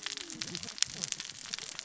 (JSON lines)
{"label": "biophony, cascading saw", "recorder": "SoundTrap 600 or HydroMoth"}